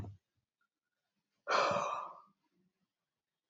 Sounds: Sigh